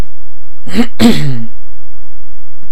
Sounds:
Throat clearing